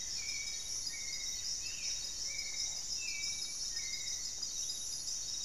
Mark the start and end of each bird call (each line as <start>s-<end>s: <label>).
0.0s-4.6s: Hauxwell's Thrush (Turdus hauxwelli)
0.0s-5.4s: Spot-winged Antshrike (Pygiptila stellaris)
0.3s-2.7s: Black-faced Antthrush (Formicarius analis)